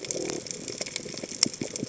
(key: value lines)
label: biophony
recorder: HydroMoth